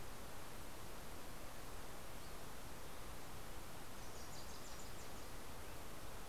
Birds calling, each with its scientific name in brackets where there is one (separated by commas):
Wilson's Warbler (Cardellina pusilla)